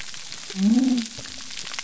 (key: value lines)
label: biophony
recorder: SoundTrap 300